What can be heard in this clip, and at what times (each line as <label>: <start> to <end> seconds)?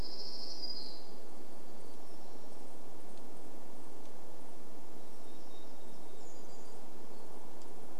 warbler song: 0 to 2 seconds
unidentified sound: 2 to 6 seconds
warbler song: 4 to 8 seconds